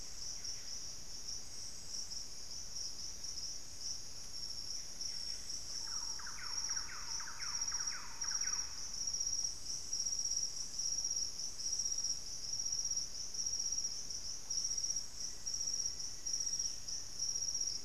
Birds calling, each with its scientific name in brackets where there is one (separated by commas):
Hauxwell's Thrush (Turdus hauxwelli), Band-tailed Manakin (Pipra fasciicauda), Black-faced Antthrush (Formicarius analis), Buff-breasted Wren (Cantorchilus leucotis), Thrush-like Wren (Campylorhynchus turdinus)